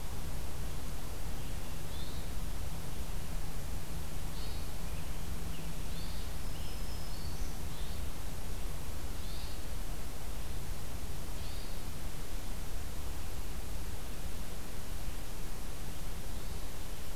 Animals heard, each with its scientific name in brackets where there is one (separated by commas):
Hermit Thrush (Catharus guttatus), Scarlet Tanager (Piranga olivacea), Black-throated Green Warbler (Setophaga virens)